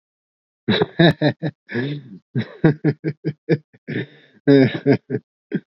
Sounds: Laughter